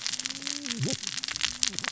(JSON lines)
{"label": "biophony, cascading saw", "recorder": "SoundTrap 600 or HydroMoth"}